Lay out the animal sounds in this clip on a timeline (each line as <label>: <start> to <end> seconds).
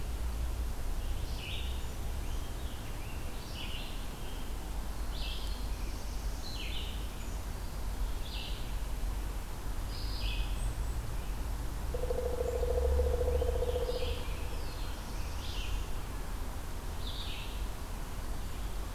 Red-eyed Vireo (Vireo olivaceus): 0.0 to 18.9 seconds
Black-throated Blue Warbler (Setophaga caerulescens): 4.8 to 6.7 seconds
Golden-crowned Kinglet (Regulus satrapa): 10.4 to 11.2 seconds
Pileated Woodpecker (Dryocopus pileatus): 11.8 to 14.2 seconds
American Robin (Turdus migratorius): 13.1 to 15.6 seconds
Black-throated Blue Warbler (Setophaga caerulescens): 14.3 to 15.9 seconds